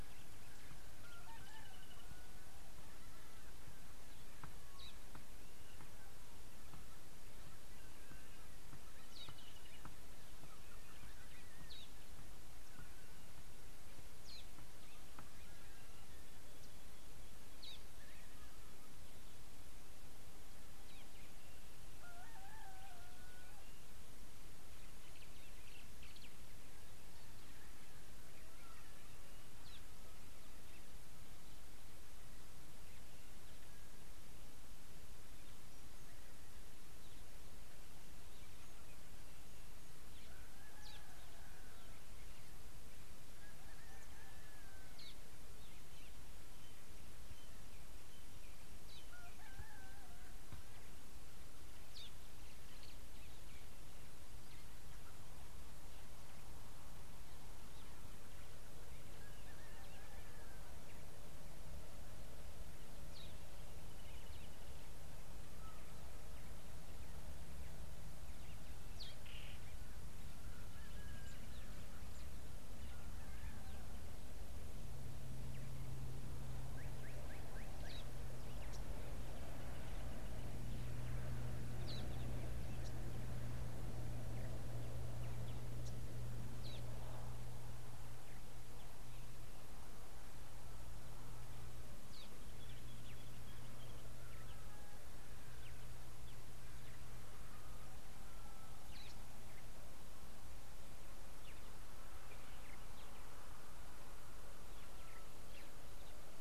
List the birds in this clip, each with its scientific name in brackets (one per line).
Brubru (Nilaus afer)
Slate-colored Boubou (Laniarius funebris)
Parrot-billed Sparrow (Passer gongonensis)